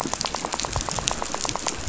{"label": "biophony, rattle", "recorder": "SoundTrap 500"}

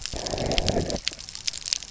{"label": "biophony", "recorder": "SoundTrap 300"}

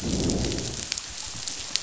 {"label": "biophony, growl", "recorder": "SoundTrap 500"}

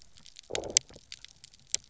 {"label": "biophony, low growl", "recorder": "SoundTrap 300"}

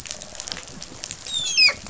{"label": "biophony, dolphin", "recorder": "SoundTrap 500"}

